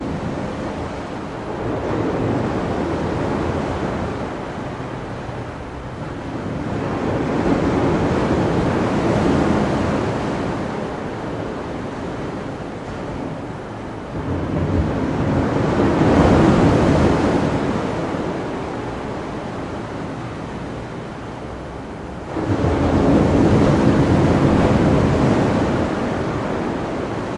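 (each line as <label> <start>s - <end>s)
Wind blowing outside, increasing in intensity and volume from moderately loud to loud. 0.0s - 27.3s
Distant thunder rumbling loudly. 6.2s - 10.8s
Distant thunder rumbling loudly. 14.0s - 18.5s
Distant thunder rumbling loudly. 22.1s - 26.6s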